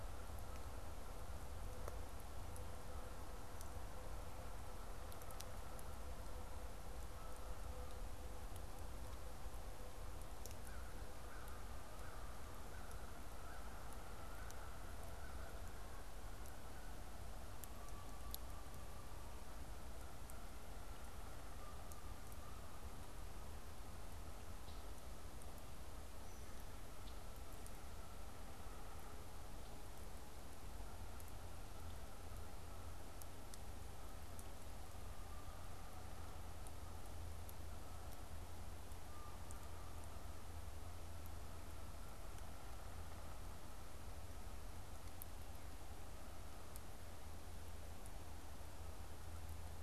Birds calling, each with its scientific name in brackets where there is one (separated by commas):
Canada Goose (Branta canadensis), American Crow (Corvus brachyrhynchos), Red-winged Blackbird (Agelaius phoeniceus)